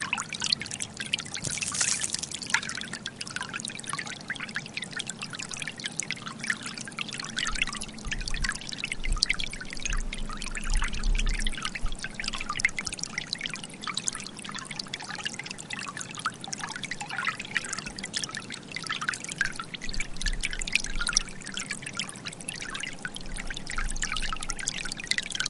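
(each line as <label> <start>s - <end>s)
Water flows and trickles melodically. 0.0s - 25.5s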